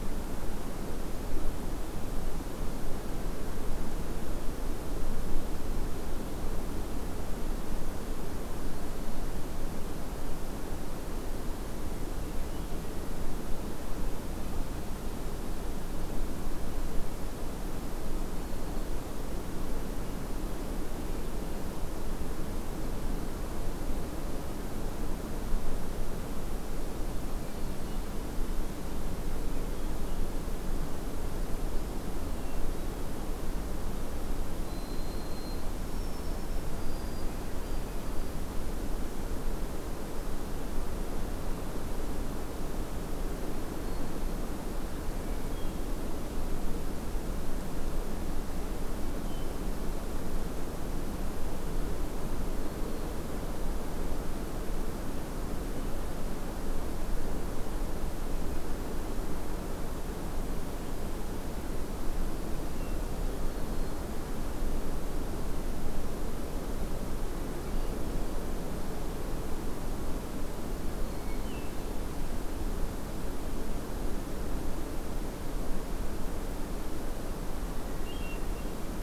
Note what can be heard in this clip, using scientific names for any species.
Catharus guttatus, Zonotrichia albicollis, Setophaga virens